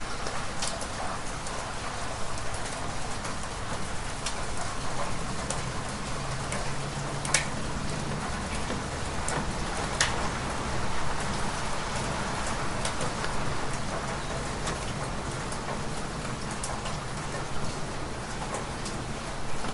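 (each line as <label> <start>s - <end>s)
Heavy rain pouring in the distance. 0.0s - 19.7s
Rain taps rhythmically and dully against a plastic surface. 0.0s - 19.7s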